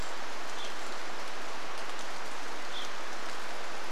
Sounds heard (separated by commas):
Evening Grosbeak call, Brown Creeper call, rain